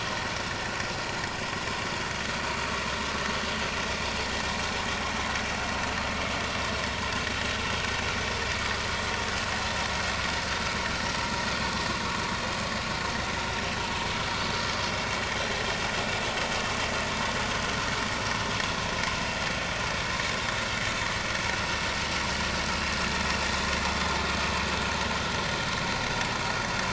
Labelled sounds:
13.7	13.9	vessel noise, 2.9 to 3.1 kHz

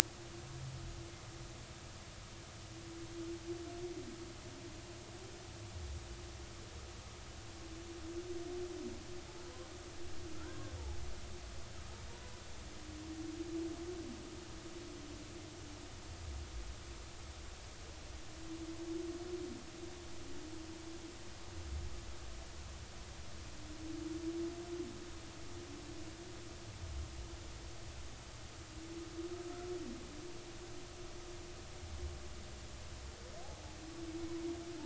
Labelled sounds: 10.3	10.6	humpback whale, 1.3 to 1.7 kHz
12.1	12.4	humpback whale, 0.90 to 1.0 kHz

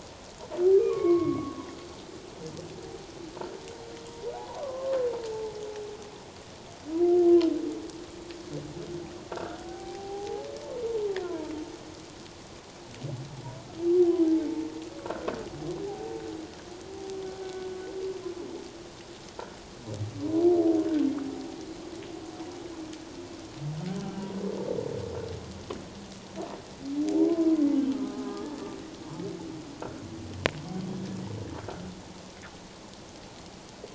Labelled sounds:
0.8	1.6	humpback whale, 0.97 to 2.2 kHz
4.3	5.0	humpback whale, 0.78 to 1.2 kHz
9.6	11.5	humpback whale, 0.78 to 1.1 kHz
15.8	16.2	humpback whale, 0.78 to 0.88 kHz
27.1	27.5	humpback whale, 0.81 to 1.1 kHz
27.9	28.7	humpback whale, 1.2 to 1.8 kHz

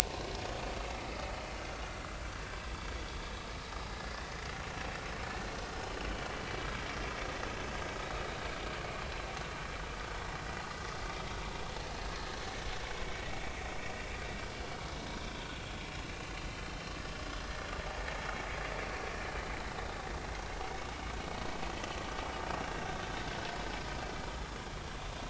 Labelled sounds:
16.2	16.8	vessel noise, 2.9 to 3.2 kHz

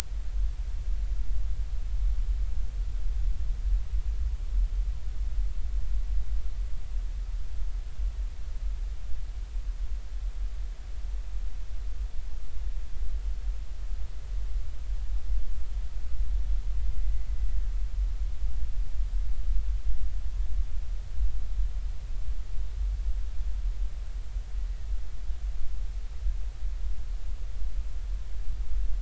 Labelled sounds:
17.4	17.6	killer whale, Bigg's (transient), 1.9 to 2.0 kHz

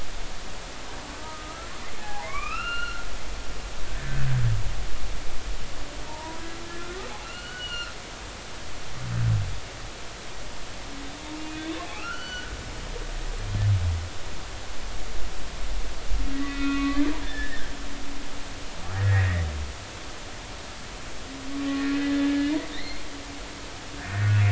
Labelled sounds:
1.2	3.1	humpback whale, 0.80 to 4.3 kHz
6.1	6.4	humpback whale, 0.86 to 1.0 kHz
7.2	7.9	humpback whale, 1.2 to 4.5 kHz
11.8	12.5	humpback whale, 1.2 to 4.5 kHz
16.3	17.6	humpback whale, 1.1 to 3.7 kHz
18.9	19.5	humpback whale, 1.6 to 2.1 kHz
21.6	23.0	humpback whale, 1.1 to 4.4 kHz
24.0	24.3	humpback whale, 1.6 to 1.9 kHz

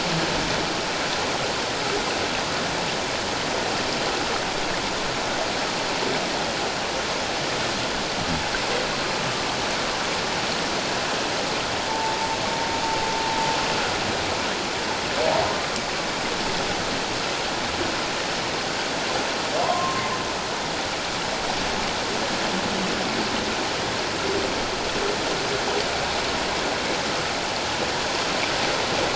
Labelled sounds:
11.9	12.3	humpback whale, 0.84 to 0.97 kHz
19.6	20.0	humpback whale, 0.91 to 1.1 kHz

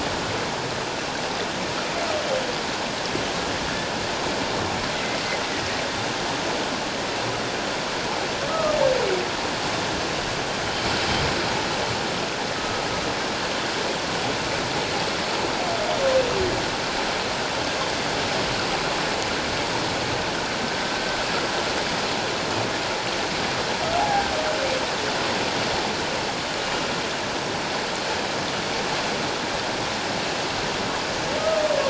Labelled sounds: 4.9	5.2	humpback whale, 2.0 to 2.1 kHz
8.5	8.8	humpback whale, 1.1 to 1.3 kHz
12.5	12.8	humpback whale, 1.2 to 1.3 kHz
24.0	24.3	humpback whale, 0.78 to 1.7 kHz
31.4	31.6	humpback whale, 1.2 to 1.3 kHz

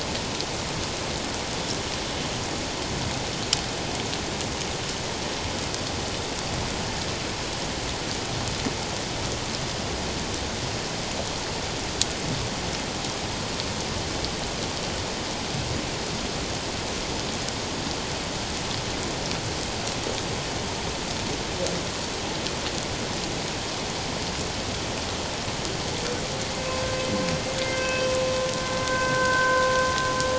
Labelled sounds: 26.7	27.0	humpback whale, 1.0 to 1.1 kHz
27.7	28.1	humpback whale, 1.5 to 3.1 kHz
28.9	29.7	humpback whale, 0.94 to 1.7 kHz

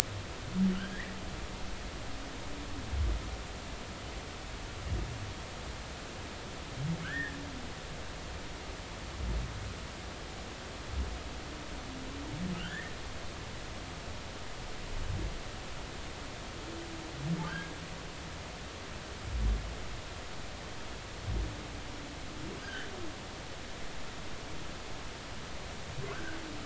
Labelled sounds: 0.7	1.1	humpback whale, 1.3 to 3.3 kHz
7.0	7.4	humpback whale, 1.2 to 1.9 kHz
12.6	12.9	humpback whale, 1.3 to 2.2 kHz
17.5	17.7	humpback whale, 1.3 to 1.7 kHz
22.6	22.9	humpback whale, 1.4 to 1.9 kHz
26.1	26.4	humpback whale, 1.0 to 1.7 kHz

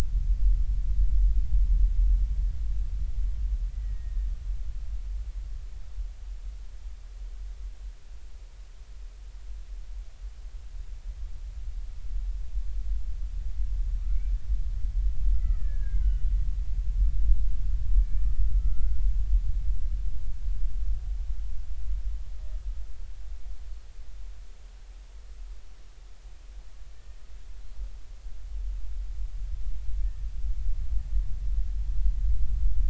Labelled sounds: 3.7	4.3	killer whale, Bigg's (transient), 1.7 to 2.0 kHz
15.3	16.3	killer whale, Bigg's (transient), 1.2 to 3.0 kHz
17.9	19.0	killer whale, Bigg's (transient), 1.2 to 2.5 kHz

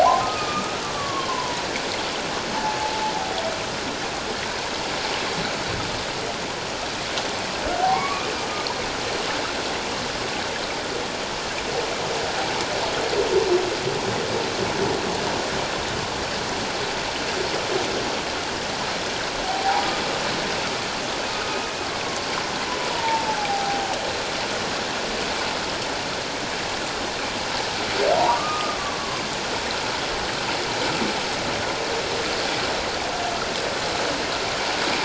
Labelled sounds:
0.0	1.6	humpback whale, 0.78 to 2.6 kHz
2.5	2.9	humpback whale, 0.81 to 0.97 kHz
7.8	8.3	humpback whale, 0.78 to 2.3 kHz
19.4	19.9	humpback whale, 0.78 to 1.1 kHz
21.3	21.6	humpback whale, 1.2 to 1.5 kHz
22.9	24.0	humpback whale, 0.78 to 1.0 kHz
28.3	29.2	humpback whale, 1.0 to 1.3 kHz

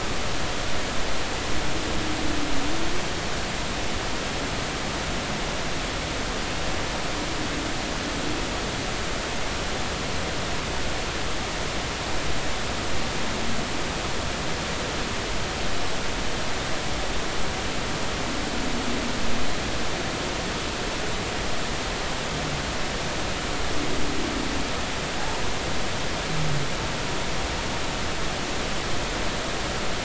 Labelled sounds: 25.2	25.4	humpback whale, 0.80 to 1.1 kHz

